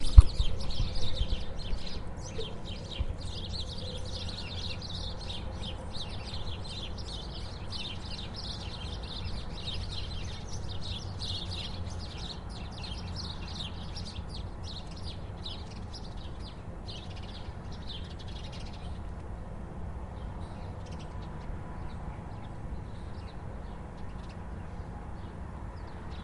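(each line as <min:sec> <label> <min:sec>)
0:00.0 A bird chirps, fading at the end. 0:26.2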